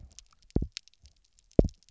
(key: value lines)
label: biophony, double pulse
recorder: SoundTrap 300